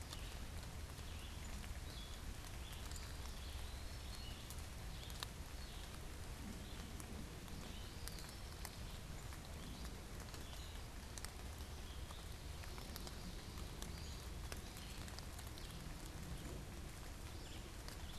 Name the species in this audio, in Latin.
Vireo olivaceus, Contopus virens, unidentified bird